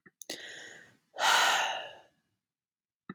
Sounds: Sigh